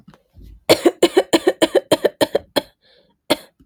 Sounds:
Cough